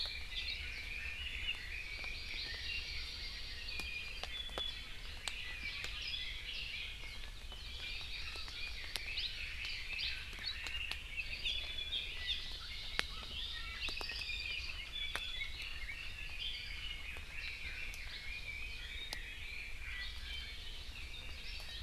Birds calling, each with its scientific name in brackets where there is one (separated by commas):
Iiwi (Drepanis coccinea), Red-billed Leiothrix (Leiothrix lutea), Apapane (Himatione sanguinea), Hawaii Amakihi (Chlorodrepanis virens)